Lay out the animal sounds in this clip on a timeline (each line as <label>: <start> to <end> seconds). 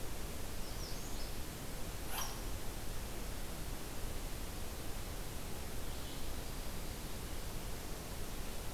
Magnolia Warbler (Setophaga magnolia): 0.4 to 1.3 seconds